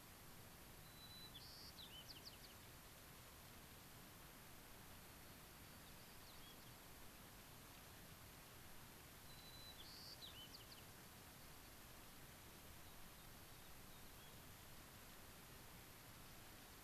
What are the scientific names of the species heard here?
Anthus rubescens, Zonotrichia leucophrys, unidentified bird